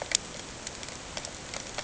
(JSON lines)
{"label": "ambient", "recorder": "HydroMoth"}